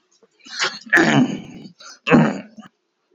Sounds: Throat clearing